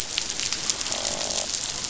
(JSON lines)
{"label": "biophony, croak", "recorder": "SoundTrap 500"}